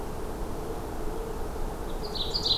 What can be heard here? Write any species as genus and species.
Seiurus aurocapilla